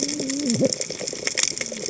{"label": "biophony, cascading saw", "recorder": "HydroMoth"}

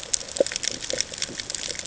{"label": "ambient", "recorder": "HydroMoth"}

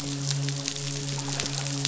{"label": "biophony, midshipman", "recorder": "SoundTrap 500"}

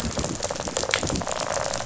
{"label": "biophony, rattle response", "recorder": "SoundTrap 500"}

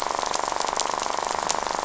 {"label": "biophony, rattle", "recorder": "SoundTrap 500"}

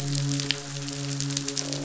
{"label": "biophony, midshipman", "recorder": "SoundTrap 500"}
{"label": "biophony, croak", "recorder": "SoundTrap 500"}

